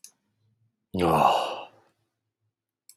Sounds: Sigh